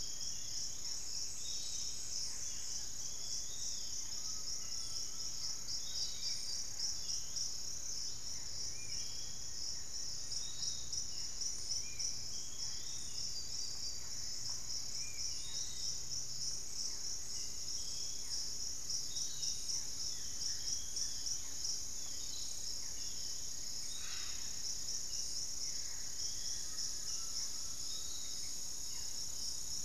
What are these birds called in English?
Plain-winged Antshrike, Barred Forest-Falcon, Long-winged Antwren, Spot-winged Antshrike, Piratic Flycatcher, Pygmy Antwren, Undulated Tinamou, Hauxwell's Thrush, Buff-throated Woodcreeper, unidentified bird